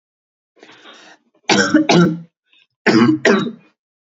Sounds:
Cough